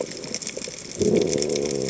{"label": "biophony", "recorder": "HydroMoth"}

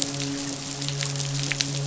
{"label": "biophony, midshipman", "recorder": "SoundTrap 500"}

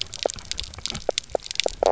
{"label": "biophony, knock croak", "recorder": "SoundTrap 300"}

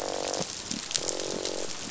{"label": "biophony, croak", "recorder": "SoundTrap 500"}
{"label": "biophony", "recorder": "SoundTrap 500"}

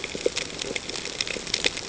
{"label": "ambient", "recorder": "HydroMoth"}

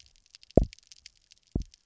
{"label": "biophony, double pulse", "recorder": "SoundTrap 300"}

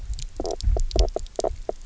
{"label": "biophony, knock croak", "recorder": "SoundTrap 300"}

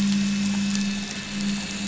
{"label": "anthrophony, boat engine", "recorder": "SoundTrap 500"}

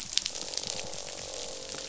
{"label": "biophony, croak", "recorder": "SoundTrap 500"}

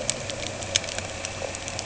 {"label": "anthrophony, boat engine", "recorder": "HydroMoth"}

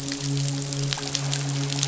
{"label": "biophony, midshipman", "recorder": "SoundTrap 500"}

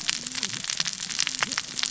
{"label": "biophony, cascading saw", "recorder": "SoundTrap 600 or HydroMoth"}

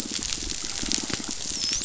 {"label": "biophony, dolphin", "recorder": "SoundTrap 500"}
{"label": "biophony", "recorder": "SoundTrap 500"}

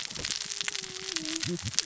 {"label": "biophony, cascading saw", "recorder": "SoundTrap 600 or HydroMoth"}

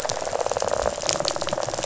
{"label": "biophony", "recorder": "SoundTrap 500"}
{"label": "biophony, rattle", "recorder": "SoundTrap 500"}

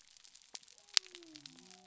{"label": "biophony", "recorder": "SoundTrap 300"}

